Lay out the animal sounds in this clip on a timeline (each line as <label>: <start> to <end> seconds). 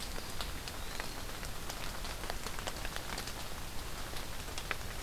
Eastern Wood-Pewee (Contopus virens): 0.0 to 1.4 seconds